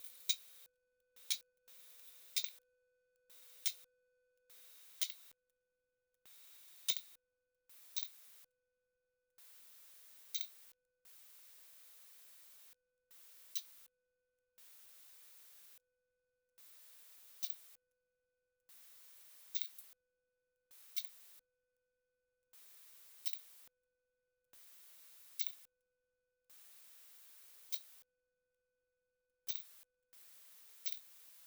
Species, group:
Poecilimon superbus
Orthoptera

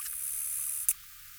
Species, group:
Acrometopa servillea
Orthoptera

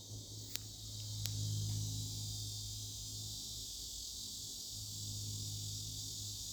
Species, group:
Neotibicen lyricen
Cicadidae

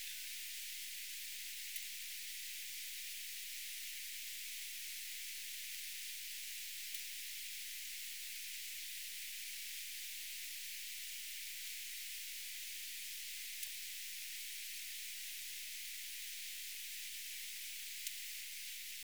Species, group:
Leptophyes albovittata
Orthoptera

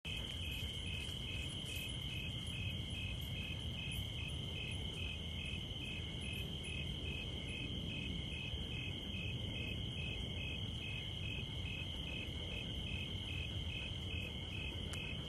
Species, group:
Oecanthus fultoni
Orthoptera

